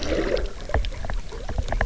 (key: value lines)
label: biophony, knock
recorder: SoundTrap 300